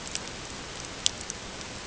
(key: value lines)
label: ambient
recorder: HydroMoth